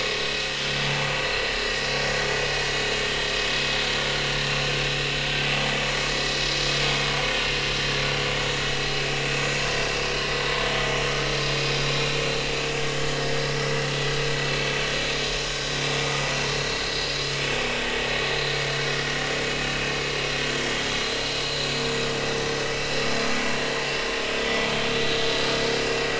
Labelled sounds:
1.5	1.8	vessel noise, 1.6 to 1.8 kHz
11.1	12.1	vessel noise, 1.2 to 4.0 kHz
13.5	13.9	vessel noise, 5.2 to 5.7 kHz
16.5	16.8	vessel noise, 4.0 to 4.4 kHz
21.4	21.7	vessel noise, 3.9 to 4.3 kHz
22.7	23.1	vessel noise, 2.6 to 2.8 kHz

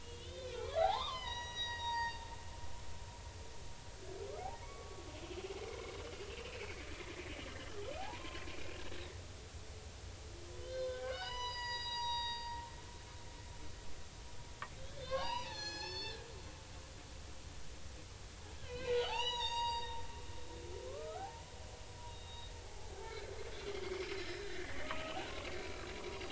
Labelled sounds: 0.0	2.3	humpback whale, 0.80 to 5.9 kHz
4.6	5.0	humpback whale, 1.1 to 2.3 kHz
6.3	6.6	humpback whale, 2.2 to 2.9 kHz
8.0	8.4	humpback whale, 0.80 to 1.1 kHz
10.6	12.6	humpback whale, 0.86 to 7.0 kHz
14.8	16.3	humpback whale, 0.80 to 6.9 kHz
18.6	20.0	humpback whale, 0.80 to 6.9 kHz
20.9	21.4	humpback whale, 0.80 to 1.7 kHz
22.1	22.9	humpback whale, 0.80 to 3.8 kHz
23.5	25.5	humpback whale, 0.90 to 5.3 kHz
25.9	26.2	humpback whale, 0.93 to 4.9 kHz

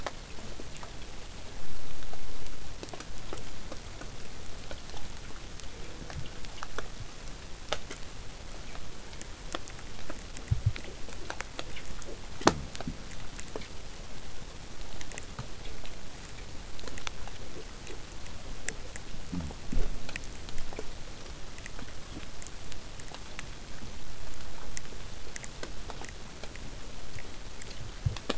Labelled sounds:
5.6	6.5	killer whale, southern resident, J pod, call S04, 0.23 to 1.8 kHz

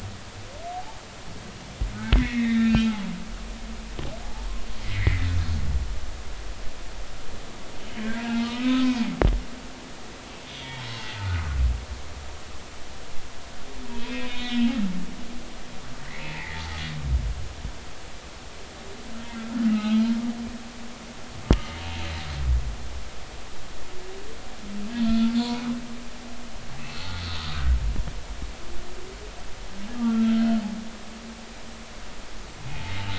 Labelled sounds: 2.0	2.9	humpback whale, 1.3 to 3.9 kHz
4.8	5.4	humpback whale, 1.8 to 3.8 kHz
7.9	9.3	humpback whale, 0.83 to 3.7 kHz
10.5	11.6	humpback whale, 0.83 to 3.6 kHz
14.0	14.8	humpback whale, 1.9 to 4.0 kHz
16.2	16.6	humpback whale, 0.83 to 2.6 kHz
19.3	20.1	humpback whale, 1.2 to 2.9 kHz
25.0	25.4	humpback whale, 1.3 to 1.4 kHz
26.8	27.1	humpback whale, 2.5 to 2.7 kHz
30.0	30.3	humpback whale, 1.3 to 1.4 kHz

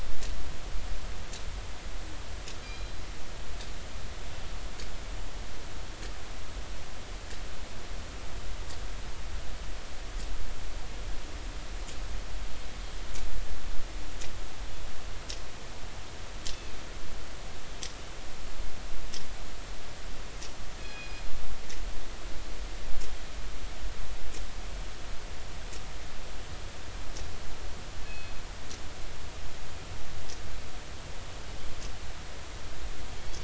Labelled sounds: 2.6	3.0	killer whale, northern resident, G clan, call N24ii, 2.3 to 4.1 kHz
20.8	21.2	killer whale, northern resident, G clan, call N24ii, 1.6 to 5.1 kHz
29.0	29.4	killer whale, northern resident, G clan, call N24ii, 2.5 to 4.3 kHz

